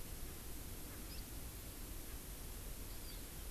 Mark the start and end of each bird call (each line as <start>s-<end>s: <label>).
0.9s-1.0s: Erckel's Francolin (Pternistis erckelii)
1.1s-1.2s: Hawaii Amakihi (Chlorodrepanis virens)
2.1s-2.2s: Erckel's Francolin (Pternistis erckelii)
2.9s-3.3s: Hawaii Amakihi (Chlorodrepanis virens)